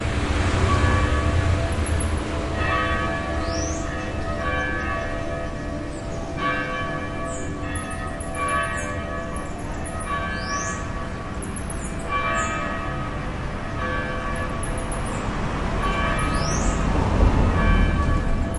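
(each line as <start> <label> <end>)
0.0 Cars pass by on a street with muffled and varying intensity. 18.6
0.9 A church bell rings melodically. 18.6
1.8 Birds chirp excitedly. 18.6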